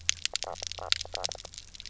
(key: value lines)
label: biophony, knock croak
recorder: SoundTrap 300